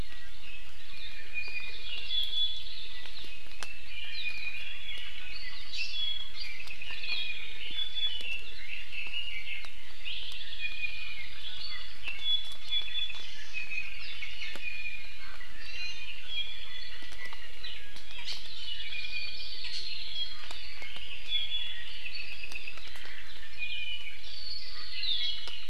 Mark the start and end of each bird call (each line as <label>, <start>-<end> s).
Iiwi (Drepanis coccinea), 0.9-2.7 s
Iiwi (Drepanis coccinea), 3.2-4.7 s
Apapane (Himatione sanguinea), 5.0-7.6 s
Iiwi (Drepanis coccinea), 7.6-8.5 s
Red-billed Leiothrix (Leiothrix lutea), 8.6-9.7 s
Hawaii Creeper (Loxops mana), 10.1-11.3 s
Iiwi (Drepanis coccinea), 10.6-13.9 s
Iiwi (Drepanis coccinea), 14.2-15.2 s
Iiwi (Drepanis coccinea), 15.5-17.0 s
Hawaii Creeper (Loxops mana), 18.5-20.1 s
Iiwi (Drepanis coccinea), 18.7-19.5 s
Iiwi (Drepanis coccinea), 21.3-21.8 s
Apapane (Himatione sanguinea), 22.0-22.8 s
Iiwi (Drepanis coccinea), 23.5-24.2 s
Apapane (Himatione sanguinea), 24.3-25.6 s